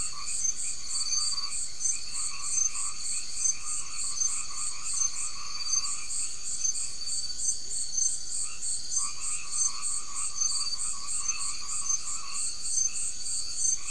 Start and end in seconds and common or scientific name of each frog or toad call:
0.0	13.1	white-edged tree frog
7.5	7.8	Leptodactylus latrans